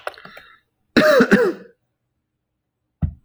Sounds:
Cough